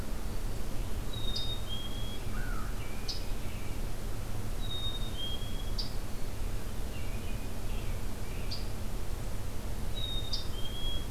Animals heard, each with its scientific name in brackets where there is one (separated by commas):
Black-capped Chickadee (Poecile atricapillus), Scarlet Tanager (Piranga olivacea), American Robin (Turdus migratorius), American Crow (Corvus brachyrhynchos)